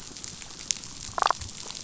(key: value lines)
label: biophony, damselfish
recorder: SoundTrap 500